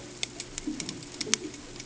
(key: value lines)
label: ambient
recorder: HydroMoth